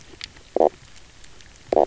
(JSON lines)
{"label": "biophony, knock croak", "recorder": "SoundTrap 300"}